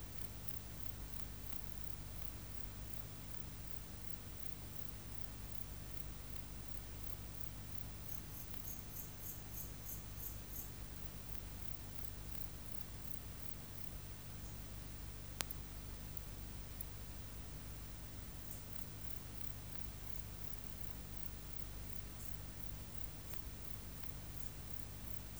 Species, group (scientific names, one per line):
Modestana ebneri
Orthoptera